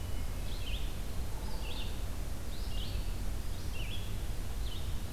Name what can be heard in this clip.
Hermit Thrush, Red-eyed Vireo